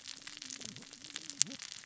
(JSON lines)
{"label": "biophony, cascading saw", "recorder": "SoundTrap 600 or HydroMoth"}